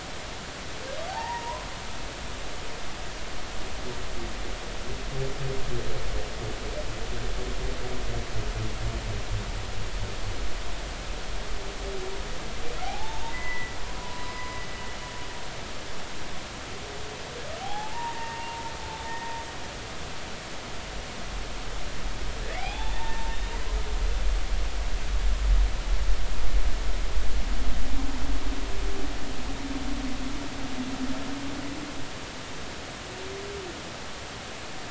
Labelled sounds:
1.1	1.7	humpback whale, 0.80 to 2.0 kHz
12.8	14.6	humpback whale, 0.80 to 6.5 kHz
17.6	18.6	humpback whale, 0.80 to 1.9 kHz
19.1	19.3	humpback whale, 1.8 to 1.9 kHz
22.5	23.6	humpback whale, 0.80 to 3.8 kHz

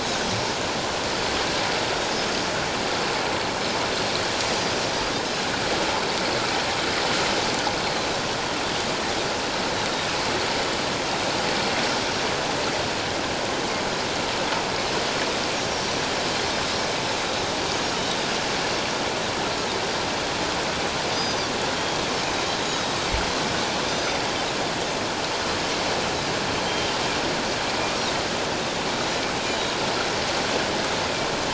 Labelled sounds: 21.1	21.5	Pacific white-sided dolphin, 3.5 to 6.2 kHz
22.6	22.9	Pacific white-sided dolphin, 3.8 to 3.9 kHz
23.9	24.2	Pacific white-sided dolphin, 5.9 to 6.2 kHz
26.6	26.9	Pacific white-sided dolphin, 3.1 to 3.2 kHz
29.5	29.8	Pacific white-sided dolphin, 3.7 to 3.9 kHz

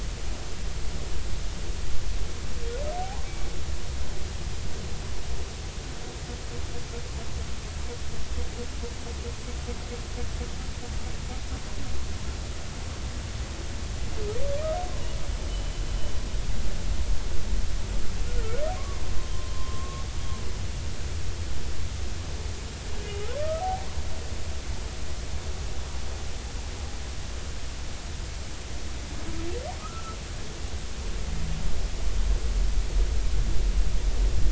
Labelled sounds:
3.0	3.3	humpback whale, 0.80 to 1.1 kHz
15.5	15.7	humpback whale, 2.9 to 3.1 kHz
18.4	19.0	humpback whale, 0.96 to 1.5 kHz
19.5	20.0	humpback whale, 0.99 to 1.2 kHz
23.4	23.7	humpback whale, 1.1 to 1.3 kHz
29.8	30.2	humpback whale, 1.2 to 1.5 kHz

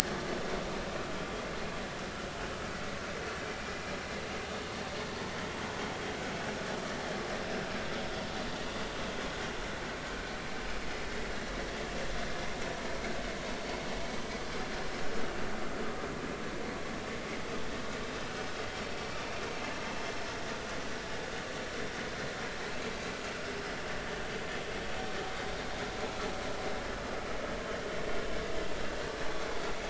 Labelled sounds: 20.0	20.2	vessel noise, 5.2 to 5.3 kHz

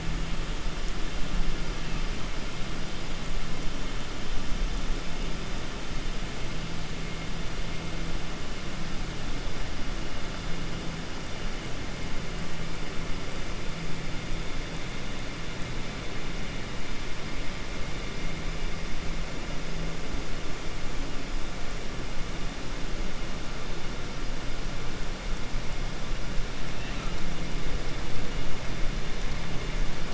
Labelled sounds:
26.7	27.1	killer whale, 1.2 to 4.1 kHz

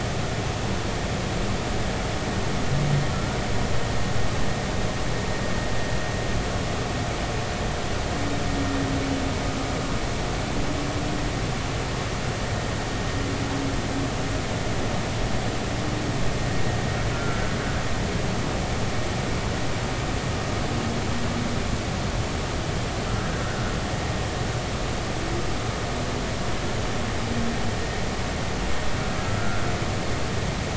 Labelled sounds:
3.1	3.4	humpback whale, 1.3 to 1.4 kHz
17.1	17.4	humpback whale, 1.3 to 1.4 kHz

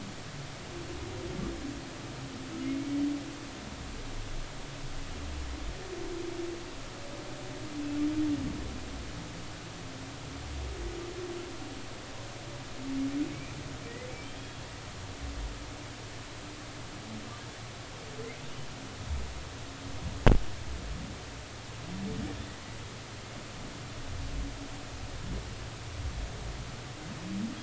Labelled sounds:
2.6	3.0	humpback whale, 2.0 to 2.3 kHz
14.1	14.6	humpback whale, 2.2 to 3.4 kHz

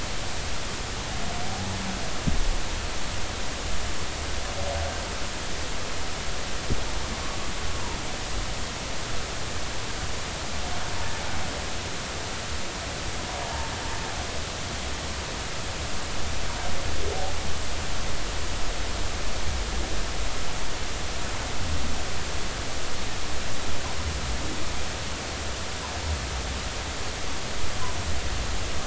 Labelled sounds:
13.4	13.7	humpback whale, 0.80 to 0.96 kHz

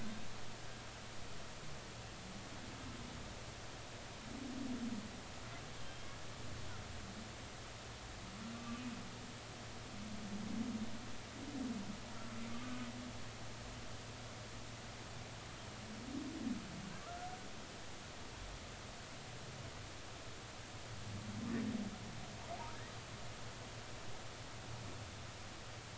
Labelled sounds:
5.7	6.2	humpback whale, 3.1 to 3.4 kHz
8.5	8.8	humpback whale, 1.1 to 1.2 kHz
18.0	18.3	humpback whale, 1.1 to 1.5 kHz

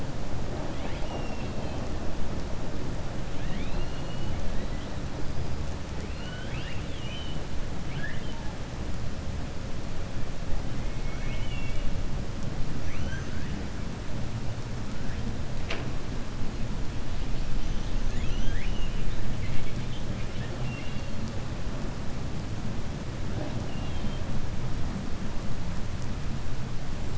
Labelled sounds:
0.7	1.8	killer whale, 0.58 to 4.1 kHz
3.3	4.3	killer whale, 1.7 to 4.3 kHz
6.0	7.4	killer whale, 1.4 to 5.0 kHz
7.8	8.4	killer whale, 1.4 to 3.6 kHz
10.9	11.8	killer whale, 1.3 to 3.4 kHz
12.8	13.5	killer whale, 1.1 to 3.2 kHz
18.0	19.1	killer whale, 1.5 to 4.2 kHz
23.6	24.2	killer whale, 2.6 to 4.2 kHz

